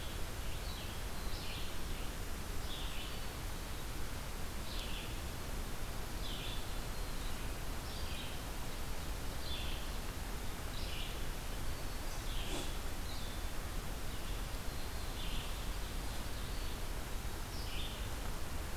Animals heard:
Red-eyed Vireo (Vireo olivaceus), Ovenbird (Seiurus aurocapilla)

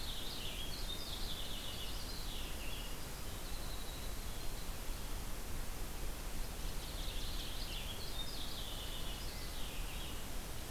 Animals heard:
Purple Finch (Haemorhous purpureus), Winter Wren (Troglodytes hiemalis)

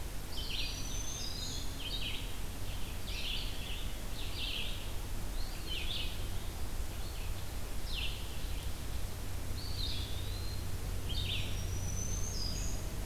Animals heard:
Red-eyed Vireo (Vireo olivaceus), Black-throated Green Warbler (Setophaga virens), Eastern Wood-Pewee (Contopus virens)

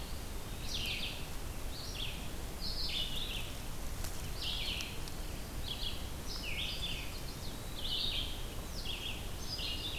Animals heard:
Chestnut-sided Warbler (Setophaga pensylvanica), Red-eyed Vireo (Vireo olivaceus)

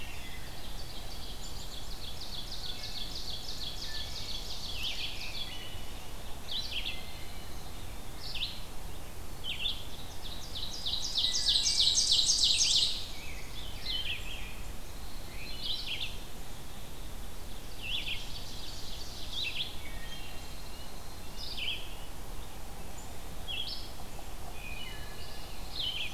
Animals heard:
Pine Warbler (Setophaga pinus), Hairy Woodpecker (Dryobates villosus), Black-and-white Warbler (Mniotilta varia), Red-eyed Vireo (Vireo olivaceus), Rose-breasted Grosbeak (Pheucticus ludovicianus), Black-capped Chickadee (Poecile atricapillus), Wood Thrush (Hylocichla mustelina), Ovenbird (Seiurus aurocapilla)

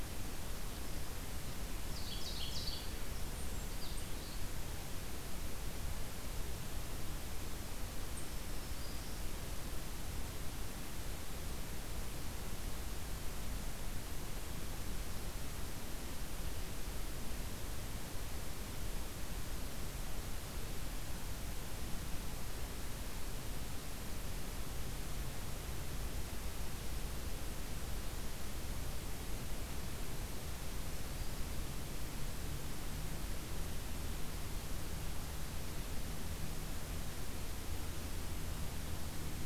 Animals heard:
Black-throated Green Warbler (Setophaga virens), Ovenbird (Seiurus aurocapilla)

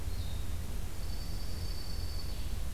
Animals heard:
Dark-eyed Junco (Junco hyemalis), Blue-headed Vireo (Vireo solitarius)

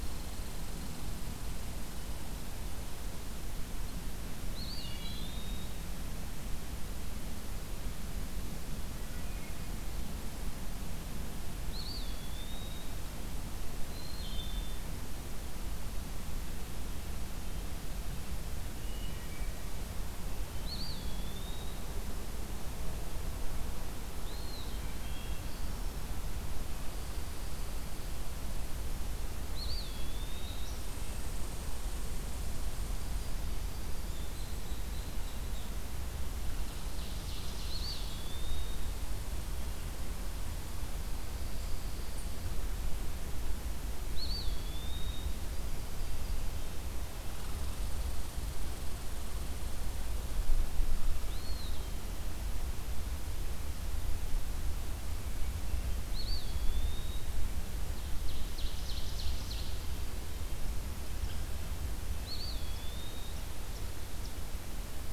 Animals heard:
unknown mammal, Wood Thrush (Hylocichla mustelina), Ovenbird (Seiurus aurocapilla), Yellow-rumped Warbler (Setophaga coronata), Pine Warbler (Setophaga pinus), Eastern Wood-Pewee (Contopus virens), Red Squirrel (Tamiasciurus hudsonicus)

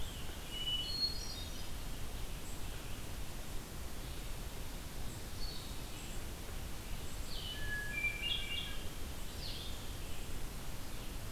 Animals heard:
Red-eyed Vireo (Vireo olivaceus), Blue-headed Vireo (Vireo solitarius), Scarlet Tanager (Piranga olivacea), Hermit Thrush (Catharus guttatus)

